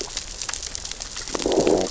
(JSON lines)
{"label": "biophony, growl", "recorder": "SoundTrap 600 or HydroMoth"}